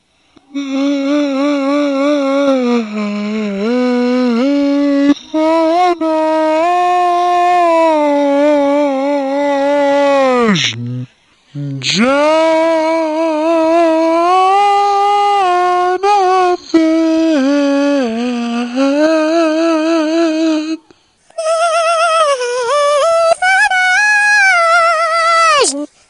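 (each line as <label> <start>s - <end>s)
A person sings continuously in a low-pitched, artificial voice. 0.5s - 20.9s
A person sings continuously in a high-pitched, artificial voice. 21.3s - 25.9s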